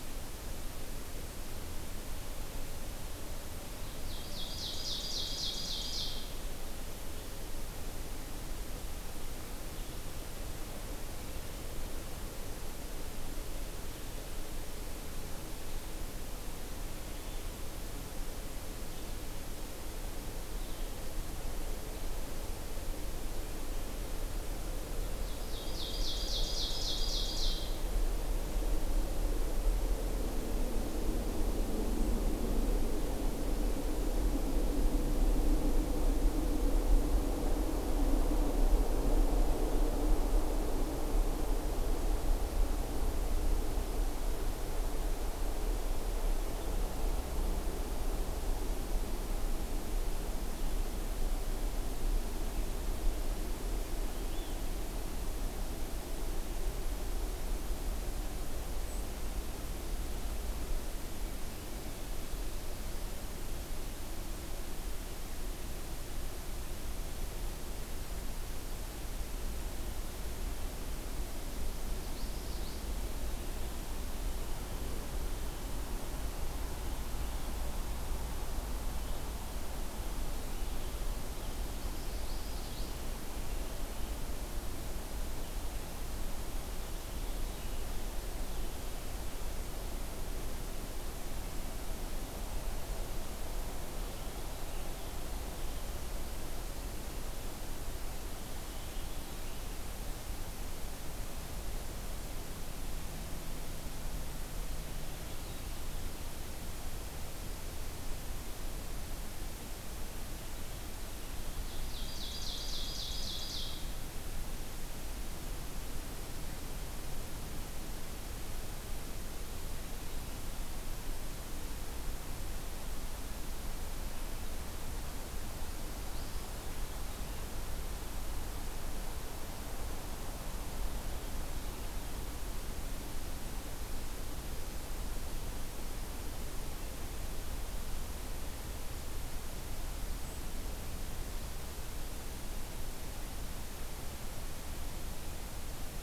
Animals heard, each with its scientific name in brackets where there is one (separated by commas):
Ovenbird (Seiurus aurocapilla), Common Yellowthroat (Geothlypis trichas)